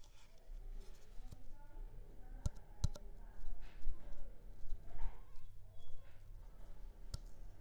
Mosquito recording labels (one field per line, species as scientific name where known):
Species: Culex pipiens complex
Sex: female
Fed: unfed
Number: one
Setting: cup